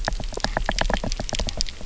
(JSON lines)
{"label": "biophony, knock", "recorder": "SoundTrap 300"}